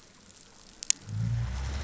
{"label": "anthrophony, boat engine", "recorder": "SoundTrap 500"}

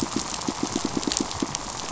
{"label": "biophony, pulse", "recorder": "SoundTrap 500"}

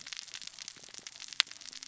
{"label": "biophony, cascading saw", "recorder": "SoundTrap 600 or HydroMoth"}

